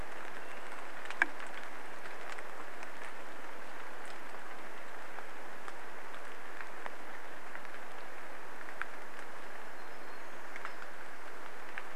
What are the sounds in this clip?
Swainson's Thrush call, rain, warbler song